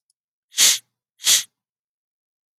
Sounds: Sniff